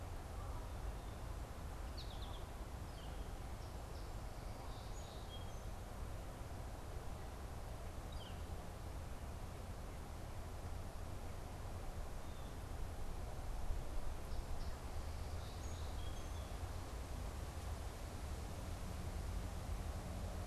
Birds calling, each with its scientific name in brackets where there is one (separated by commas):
Song Sparrow (Melospiza melodia), American Goldfinch (Spinus tristis), Northern Flicker (Colaptes auratus)